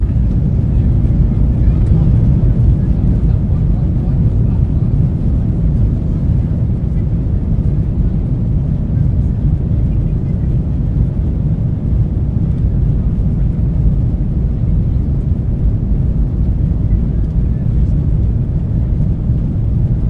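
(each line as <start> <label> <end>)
1.0 A jet takes off and lands, with ambient airplane interior sounds, engine hum, and passengers chatting in the background. 11.3
11.5 Jet engine taking off with background chatter and ambient airplane interior sounds. 16.9
17.2 A jet takes off and lands, with ambient airplane interior sounds, engine hum, and passengers chatting in the background. 20.1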